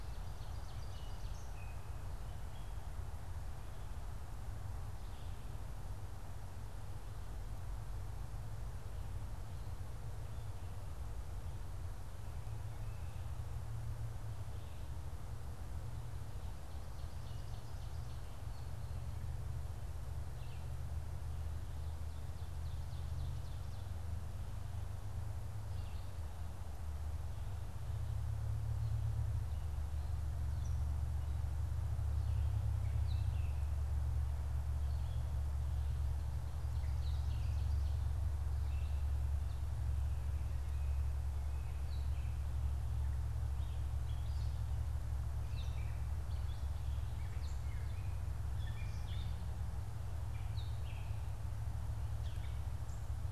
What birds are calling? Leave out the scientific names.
Ovenbird, Gray Catbird